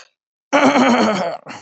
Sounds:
Throat clearing